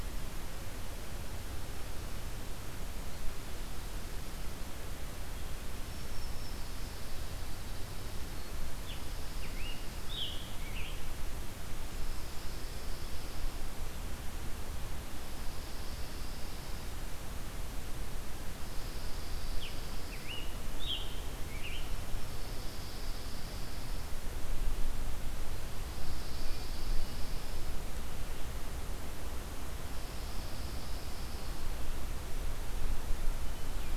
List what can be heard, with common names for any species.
Black-throated Green Warbler, Chipping Sparrow, Scarlet Tanager, Pine Warbler